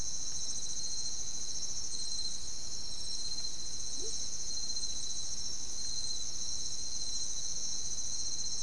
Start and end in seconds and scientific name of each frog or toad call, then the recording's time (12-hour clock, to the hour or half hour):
3.9	4.3	Leptodactylus latrans
~2am